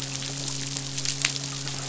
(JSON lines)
{"label": "biophony, midshipman", "recorder": "SoundTrap 500"}